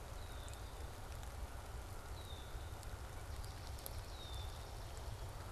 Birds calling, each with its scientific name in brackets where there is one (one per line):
Swamp Sparrow (Melospiza georgiana)
Red-winged Blackbird (Agelaius phoeniceus)